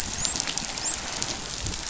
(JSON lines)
{"label": "biophony, dolphin", "recorder": "SoundTrap 500"}